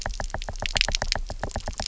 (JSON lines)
{"label": "biophony, knock", "recorder": "SoundTrap 300"}